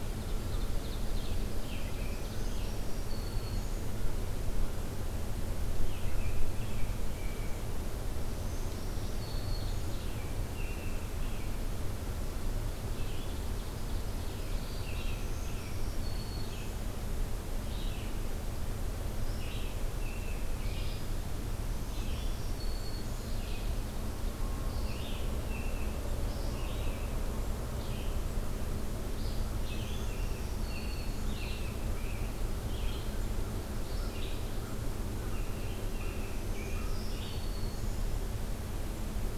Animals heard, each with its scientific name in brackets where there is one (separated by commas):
American Robin (Turdus migratorius), Black-throated Green Warbler (Setophaga virens), Ovenbird (Seiurus aurocapilla), Red-eyed Vireo (Vireo olivaceus)